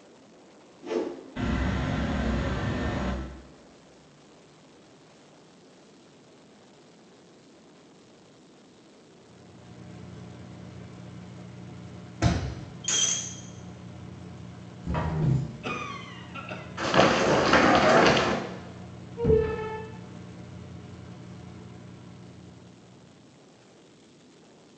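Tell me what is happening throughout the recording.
From 8.87 to 23.85 seconds, a quiet engine can be heard, fading in and fading out. At 0.8 seconds, there is a whoosh. Then, at 1.35 seconds, wind blows. After that, at 12.21 seconds, a wooden cupboard closes. Then, at 12.84 seconds, glass shatters. Afterwards, at 14.83 seconds, wooden furniture moving is audible. Later, at 15.62 seconds, someone coughs. After that, at 16.77 seconds, someone runs. Afterwards, at 19.16 seconds, wooden furniture moves. A steady noise lies quiet in the background.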